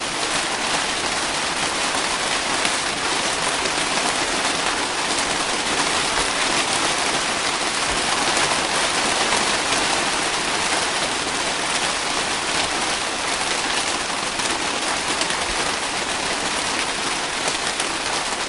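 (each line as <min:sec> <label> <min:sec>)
0:00.0 The sound of rainfall impacting a surface. 0:18.4
0:00.0 Ambient rain in the distance. 0:18.5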